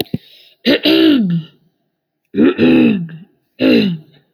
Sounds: Cough